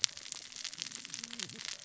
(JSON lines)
{"label": "biophony, cascading saw", "recorder": "SoundTrap 600 or HydroMoth"}